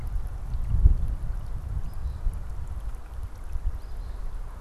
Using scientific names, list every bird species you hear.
Sayornis phoebe